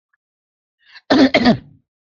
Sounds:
Cough